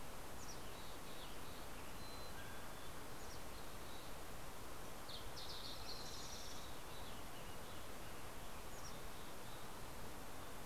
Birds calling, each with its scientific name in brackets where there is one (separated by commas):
Mountain Chickadee (Poecile gambeli), Mountain Quail (Oreortyx pictus), Western Tanager (Piranga ludoviciana), Fox Sparrow (Passerella iliaca)